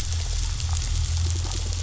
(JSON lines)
{"label": "biophony", "recorder": "SoundTrap 500"}